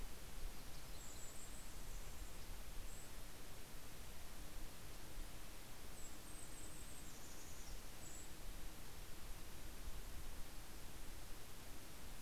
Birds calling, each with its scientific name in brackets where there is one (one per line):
Golden-crowned Kinglet (Regulus satrapa)
Yellow-rumped Warbler (Setophaga coronata)